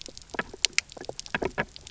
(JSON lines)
{"label": "biophony, knock croak", "recorder": "SoundTrap 300"}